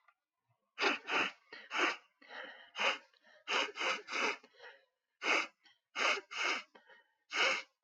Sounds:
Sniff